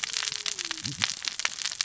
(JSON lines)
{"label": "biophony, cascading saw", "recorder": "SoundTrap 600 or HydroMoth"}